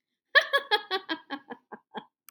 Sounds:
Laughter